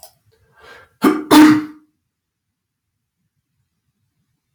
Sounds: Sneeze